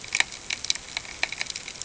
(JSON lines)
{"label": "ambient", "recorder": "HydroMoth"}